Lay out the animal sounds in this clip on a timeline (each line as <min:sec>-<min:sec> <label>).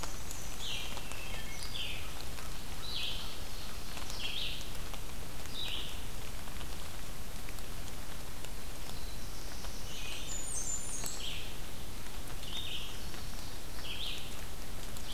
0:00.0-0:01.0 Black-and-white Warbler (Mniotilta varia)
0:00.0-0:15.1 Red-eyed Vireo (Vireo olivaceus)
0:01.0-0:01.8 Wood Thrush (Hylocichla mustelina)
0:03.1-0:04.3 Ovenbird (Seiurus aurocapilla)
0:08.3-0:10.3 Black-throated Blue Warbler (Setophaga caerulescens)
0:10.0-0:11.5 Blackburnian Warbler (Setophaga fusca)